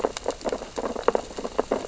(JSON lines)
{"label": "biophony, sea urchins (Echinidae)", "recorder": "SoundTrap 600 or HydroMoth"}